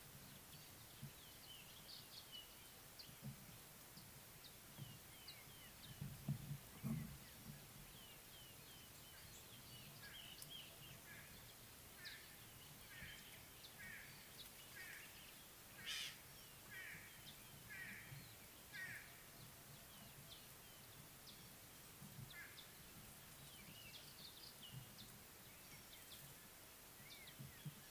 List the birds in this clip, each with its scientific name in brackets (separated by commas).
Ring-necked Dove (Streptopelia capicola), White-bellied Go-away-bird (Corythaixoides leucogaster)